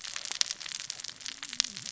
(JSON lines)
{"label": "biophony, cascading saw", "recorder": "SoundTrap 600 or HydroMoth"}